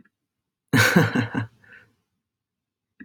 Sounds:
Laughter